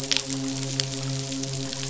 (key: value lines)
label: biophony, midshipman
recorder: SoundTrap 500